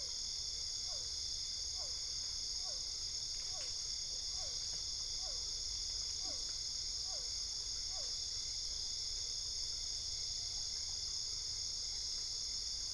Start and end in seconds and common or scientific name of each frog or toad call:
0.0	8.2	Physalaemus cuvieri
0.0	12.9	Dendropsophus cruzi